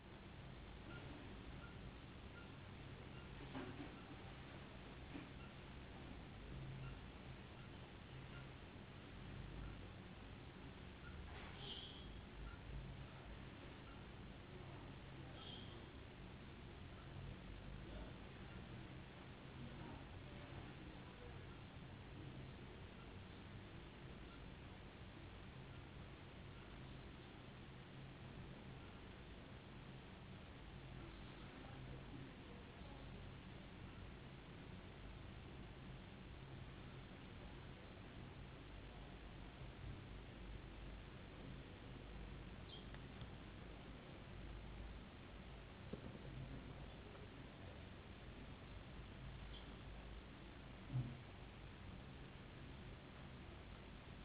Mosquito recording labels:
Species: no mosquito; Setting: insect culture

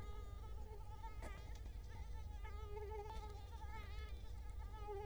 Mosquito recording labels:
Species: Culex quinquefasciatus; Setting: cup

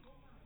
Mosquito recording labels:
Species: mosquito; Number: one; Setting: cup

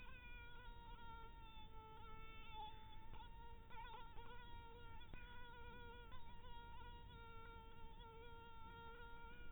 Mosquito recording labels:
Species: mosquito; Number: one; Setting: cup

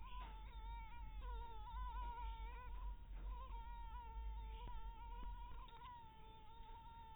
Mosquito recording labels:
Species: mosquito; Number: one; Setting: cup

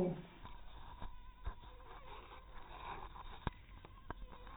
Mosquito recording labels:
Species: mosquito; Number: one; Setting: cup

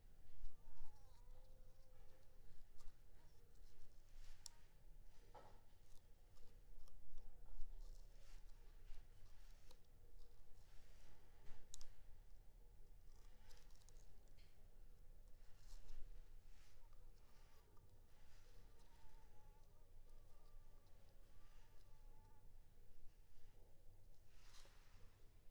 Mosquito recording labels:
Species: Anopheles coustani; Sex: female; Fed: unfed; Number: one; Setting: cup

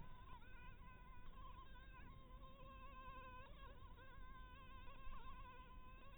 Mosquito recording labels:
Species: Anopheles maculatus; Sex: female; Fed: blood-fed; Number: one; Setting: cup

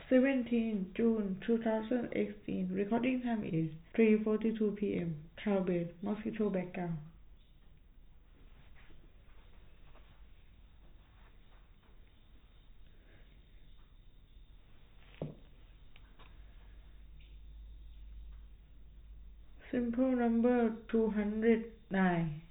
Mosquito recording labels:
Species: no mosquito; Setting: cup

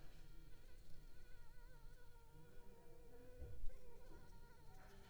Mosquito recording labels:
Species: Anopheles gambiae s.l.; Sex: female; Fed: unfed; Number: one; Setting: cup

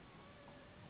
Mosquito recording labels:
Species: Anopheles gambiae s.s.; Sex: female; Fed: unfed; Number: one; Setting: insect culture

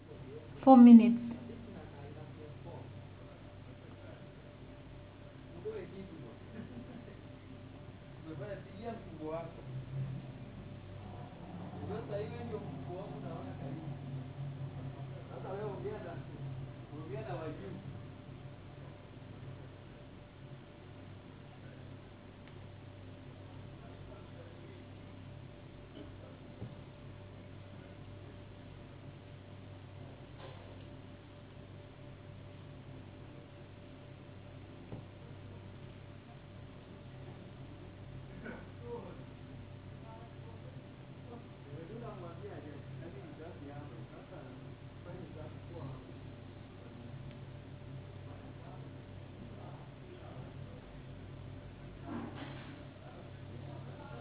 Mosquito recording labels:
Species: no mosquito; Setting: insect culture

